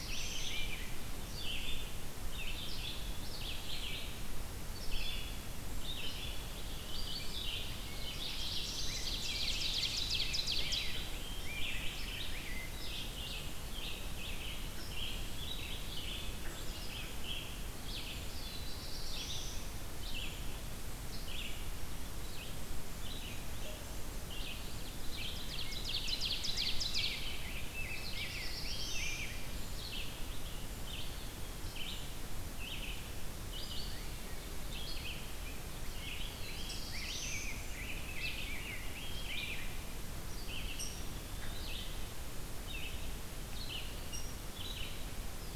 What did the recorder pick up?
Black-throated Blue Warbler, Rose-breasted Grosbeak, Red-eyed Vireo, Ovenbird